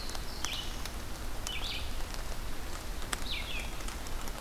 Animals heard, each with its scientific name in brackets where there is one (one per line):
Black-throated Blue Warbler (Setophaga caerulescens)
Red-eyed Vireo (Vireo olivaceus)